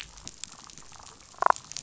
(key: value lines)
label: biophony, damselfish
recorder: SoundTrap 500